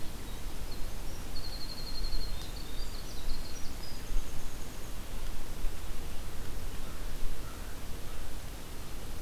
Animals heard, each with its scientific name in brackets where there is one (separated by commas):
Winter Wren (Troglodytes hiemalis), American Crow (Corvus brachyrhynchos)